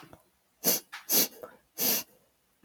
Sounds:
Sniff